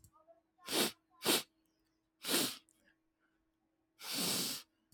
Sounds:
Sniff